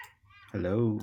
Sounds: Cough